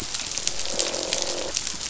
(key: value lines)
label: biophony, croak
recorder: SoundTrap 500